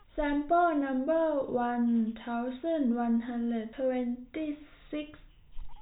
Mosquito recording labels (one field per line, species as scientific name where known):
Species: no mosquito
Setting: cup